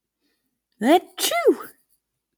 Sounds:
Sneeze